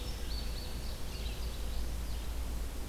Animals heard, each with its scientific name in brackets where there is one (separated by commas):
Indigo Bunting (Passerina cyanea), Red-eyed Vireo (Vireo olivaceus)